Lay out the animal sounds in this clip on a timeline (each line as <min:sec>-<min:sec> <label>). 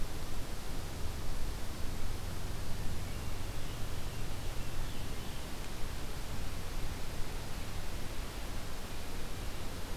0:02.8-0:04.1 Hermit Thrush (Catharus guttatus)
0:04.2-0:05.7 Ovenbird (Seiurus aurocapilla)